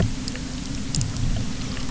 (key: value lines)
label: anthrophony, boat engine
recorder: SoundTrap 300